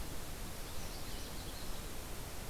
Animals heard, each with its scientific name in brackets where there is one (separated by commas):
Canada Warbler (Cardellina canadensis)